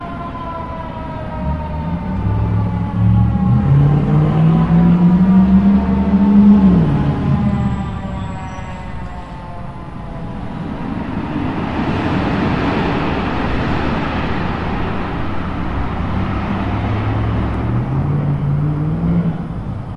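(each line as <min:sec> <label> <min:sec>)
0:00.0 An emergency siren sounds loudly and then fades away. 0:20.0
0:01.4 A heavy vehicle repeatedly and abruptly accelerates with a low-pitched engine sound. 0:08.0
0:10.6 A car passes by with a steady engine sound. 0:16.4
0:16.2 A heavy vehicle repeatedly and abruptly accelerates with a low-pitched engine sound. 0:19.4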